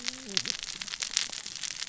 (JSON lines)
{"label": "biophony, cascading saw", "recorder": "SoundTrap 600 or HydroMoth"}